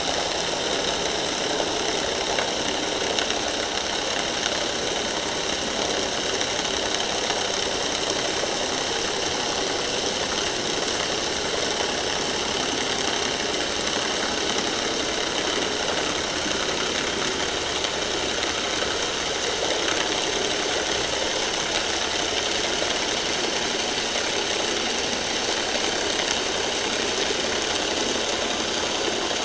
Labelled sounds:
1.8	2.1	vessel noise, 4.2 to 4.4 kHz

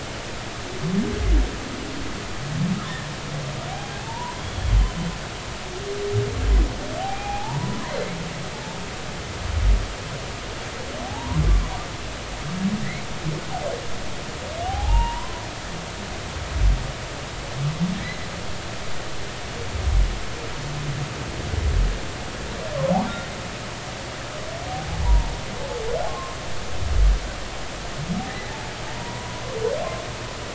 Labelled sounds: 3.7	4.4	humpback whale, 0.80 to 1.1 kHz
4.7	5.0	humpback whale, 3.0 to 3.1 kHz
7.0	7.9	humpback whale, 0.80 to 2.6 kHz
11.0	11.4	humpback whale, 0.80 to 1.1 kHz
12.8	13.1	humpback whale, 1.7 to 2.3 kHz
14.7	15.4	humpback whale, 0.80 to 3.0 kHz
17.9	18.2	humpback whale, 1.8 to 2.1 kHz
25.0	25.3	humpback whale, 0.83 to 1.0 kHz
26.1	26.4	humpback whale, 0.99 to 1.1 kHz
28.9	29.6	humpback whale, 0.83 to 2.1 kHz

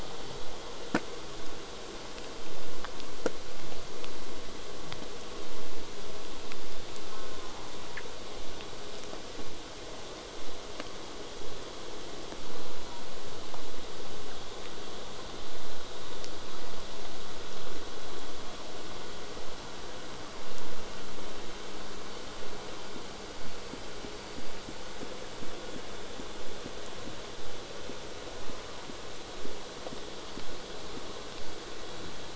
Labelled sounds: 7.1	7.6	killer whale, southern resident, J pod, call S04, 0.23 to 1.7 kHz
22.4	27.4	vessel noise, 0 to 8.0 kHz

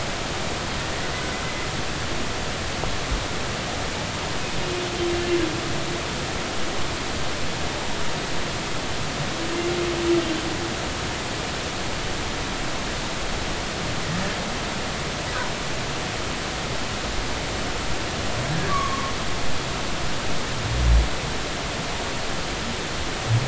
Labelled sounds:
18.5	19.1	humpback whale, 0.96 to 1.9 kHz

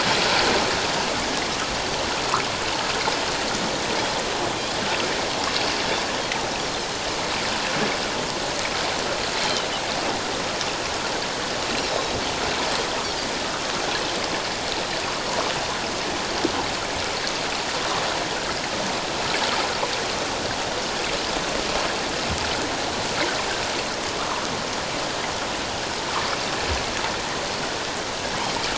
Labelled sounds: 11.9	12.1	Pacific white-sided dolphin, 3.8 to 4.0 kHz

